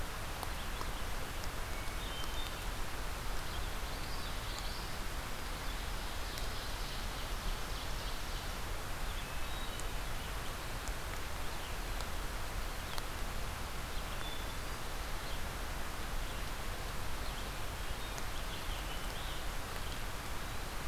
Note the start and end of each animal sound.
[1.63, 2.62] Hermit Thrush (Catharus guttatus)
[3.70, 4.88] Common Yellowthroat (Geothlypis trichas)
[5.46, 8.59] Ovenbird (Seiurus aurocapilla)
[9.06, 10.21] Hermit Thrush (Catharus guttatus)
[14.08, 15.08] Hermit Thrush (Catharus guttatus)
[17.57, 18.31] Hermit Thrush (Catharus guttatus)
[18.23, 19.38] Common Yellowthroat (Geothlypis trichas)
[19.71, 20.88] Eastern Wood-Pewee (Contopus virens)

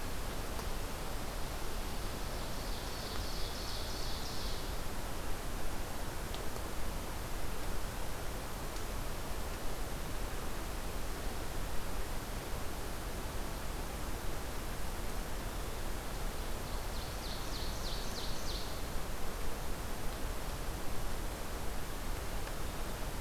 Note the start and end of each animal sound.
[2.20, 4.63] Ovenbird (Seiurus aurocapilla)
[16.46, 18.69] Ovenbird (Seiurus aurocapilla)

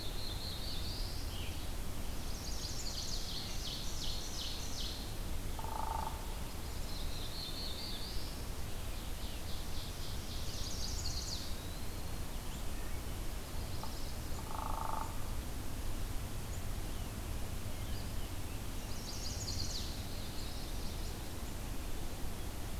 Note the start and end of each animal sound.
[0.00, 1.45] Black-throated Blue Warbler (Setophaga caerulescens)
[0.00, 1.72] Red-eyed Vireo (Vireo olivaceus)
[1.99, 3.28] Chestnut-sided Warbler (Setophaga pensylvanica)
[3.19, 5.40] Ovenbird (Seiurus aurocapilla)
[5.39, 6.51] Hairy Woodpecker (Dryobates villosus)
[6.61, 8.50] Black-throated Blue Warbler (Setophaga caerulescens)
[8.49, 10.28] Ovenbird (Seiurus aurocapilla)
[10.23, 11.55] Chestnut-sided Warbler (Setophaga pensylvanica)
[10.69, 12.50] Eastern Wood-Pewee (Contopus virens)
[13.17, 14.42] Chestnut-sided Warbler (Setophaga pensylvanica)
[14.12, 15.37] Hairy Woodpecker (Dryobates villosus)
[18.66, 21.28] Chestnut-sided Warbler (Setophaga pensylvanica)

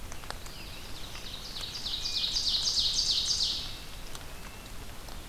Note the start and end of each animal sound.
[0.00, 1.79] Scarlet Tanager (Piranga olivacea)
[0.23, 3.46] Ovenbird (Seiurus aurocapilla)
[1.88, 2.42] Hermit Thrush (Catharus guttatus)
[2.46, 4.87] Red-breasted Nuthatch (Sitta canadensis)

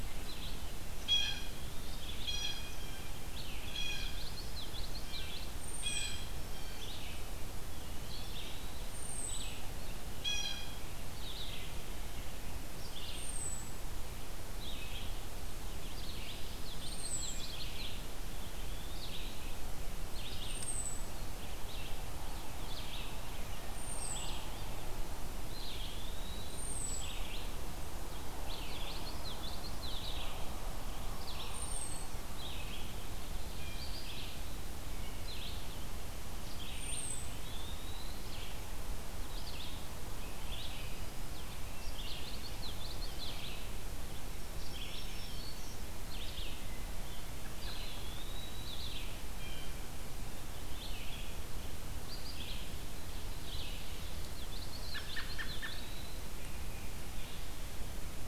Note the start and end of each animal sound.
[0.00, 57.59] Red-eyed Vireo (Vireo olivaceus)
[0.95, 6.94] Blue Jay (Cyanocitta cristata)
[3.88, 5.47] Common Yellowthroat (Geothlypis trichas)
[5.61, 6.21] American Robin (Turdus migratorius)
[7.68, 8.95] Eastern Wood-Pewee (Contopus virens)
[8.74, 9.56] American Robin (Turdus migratorius)
[10.06, 11.10] Blue Jay (Cyanocitta cristata)
[13.19, 13.77] American Robin (Turdus migratorius)
[16.42, 18.16] Common Yellowthroat (Geothlypis trichas)
[16.70, 17.51] American Robin (Turdus migratorius)
[18.13, 19.19] Eastern Wood-Pewee (Contopus virens)
[20.34, 21.12] American Robin (Turdus migratorius)
[23.64, 24.25] American Robin (Turdus migratorius)
[25.29, 26.75] Eastern Wood-Pewee (Contopus virens)
[26.47, 27.18] American Robin (Turdus migratorius)
[28.70, 30.48] Common Yellowthroat (Geothlypis trichas)
[31.00, 32.35] Black-throated Green Warbler (Setophaga virens)
[31.54, 32.07] American Robin (Turdus migratorius)
[33.52, 34.02] Blue Jay (Cyanocitta cristata)
[36.67, 37.32] American Robin (Turdus migratorius)
[37.14, 38.29] Eastern Wood-Pewee (Contopus virens)
[41.51, 43.40] Common Yellowthroat (Geothlypis trichas)
[44.33, 45.83] Black-throated Green Warbler (Setophaga virens)
[47.61, 48.88] Eastern Wood-Pewee (Contopus virens)
[49.30, 49.91] Blue Jay (Cyanocitta cristata)
[54.27, 56.32] Common Yellowthroat (Geothlypis trichas)
[54.87, 55.85] American Robin (Turdus migratorius)

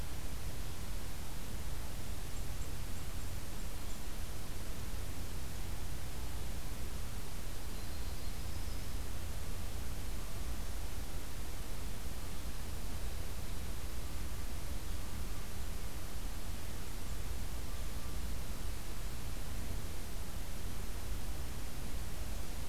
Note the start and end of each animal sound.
[2.10, 4.01] Dark-eyed Junco (Junco hyemalis)
[7.42, 9.10] Yellow-rumped Warbler (Setophaga coronata)

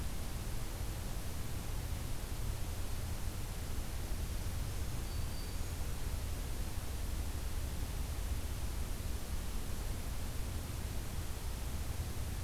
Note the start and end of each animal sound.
[4.41, 5.74] Black-throated Green Warbler (Setophaga virens)

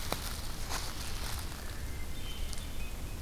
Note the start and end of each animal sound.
[1.64, 3.21] Hermit Thrush (Catharus guttatus)

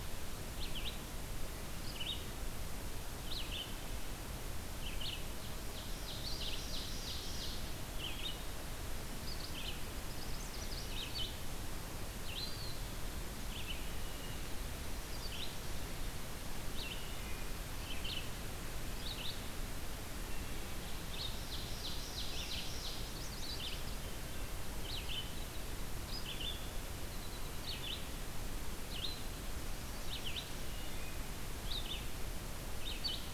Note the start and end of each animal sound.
[0.00, 13.84] Red-eyed Vireo (Vireo olivaceus)
[5.23, 7.80] Ovenbird (Seiurus aurocapilla)
[7.88, 8.49] Wood Thrush (Hylocichla mustelina)
[9.71, 11.07] Chestnut-sided Warbler (Setophaga pensylvanica)
[12.15, 12.93] Eastern Wood-Pewee (Contopus virens)
[13.70, 14.47] Wood Thrush (Hylocichla mustelina)
[14.99, 19.49] Red-eyed Vireo (Vireo olivaceus)
[16.82, 17.81] Wood Thrush (Hylocichla mustelina)
[20.00, 20.84] Wood Thrush (Hylocichla mustelina)
[20.96, 33.27] Red-eyed Vireo (Vireo olivaceus)
[21.26, 23.21] Ovenbird (Seiurus aurocapilla)
[22.71, 23.91] Chestnut-sided Warbler (Setophaga pensylvanica)
[23.77, 24.75] Wood Thrush (Hylocichla mustelina)
[26.91, 27.68] American Goldfinch (Spinus tristis)
[29.39, 30.61] Black-and-white Warbler (Mniotilta varia)
[30.50, 31.27] Wood Thrush (Hylocichla mustelina)

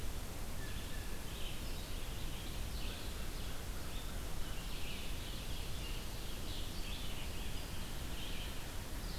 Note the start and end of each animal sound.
[0.00, 9.18] Red-eyed Vireo (Vireo olivaceus)
[0.47, 1.39] Blue Jay (Cyanocitta cristata)
[2.71, 4.69] American Crow (Corvus brachyrhynchos)
[8.64, 9.18] Ovenbird (Seiurus aurocapilla)

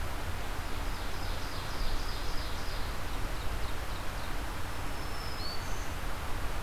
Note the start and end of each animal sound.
[0.54, 4.41] Ovenbird (Seiurus aurocapilla)
[4.45, 5.98] Black-throated Green Warbler (Setophaga virens)

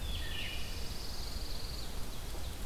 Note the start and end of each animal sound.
[0.00, 0.99] Wood Thrush (Hylocichla mustelina)
[0.20, 0.58] Veery (Catharus fuscescens)
[0.21, 1.90] Pine Warbler (Setophaga pinus)

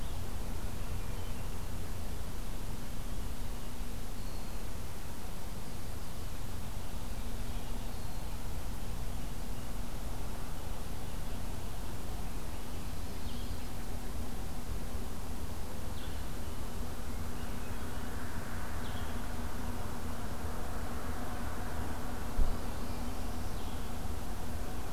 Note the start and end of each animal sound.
[0.47, 1.60] Hermit Thrush (Catharus guttatus)
[13.21, 13.53] Blue-headed Vireo (Vireo solitarius)
[15.89, 16.20] Blue-headed Vireo (Vireo solitarius)
[16.98, 18.07] Hermit Thrush (Catharus guttatus)
[18.71, 19.08] Blue-headed Vireo (Vireo solitarius)
[22.37, 23.61] Northern Parula (Setophaga americana)
[23.51, 23.90] Blue-headed Vireo (Vireo solitarius)

